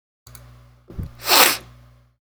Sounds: Sniff